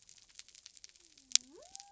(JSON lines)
{"label": "biophony", "recorder": "SoundTrap 300"}